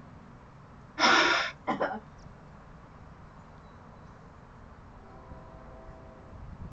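At 0.96 seconds, breathing is heard. After that, at 1.64 seconds, someone coughs.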